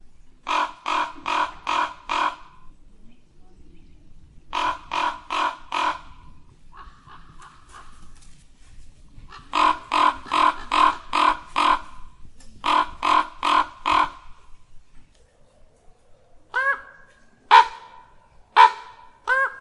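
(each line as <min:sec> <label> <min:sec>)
0:00.5 A crow screams in a regular pattern. 0:02.4
0:02.9 A bird chirps in the distance. 0:04.4
0:04.5 A crow screams a series of loud caws. 0:06.1
0:06.8 A crow screams rapidly in the distance. 0:08.0
0:09.5 A crow screams a series of loud caws. 0:14.3
0:16.5 A raven screaming quickly. 0:16.9
0:17.5 A crow emits a sharp and powerful scream. 0:17.9
0:18.6 A crow screams shortly. 0:19.0
0:19.3 A raven screams briefly. 0:19.6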